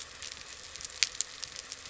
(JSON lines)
{"label": "anthrophony, boat engine", "recorder": "SoundTrap 300"}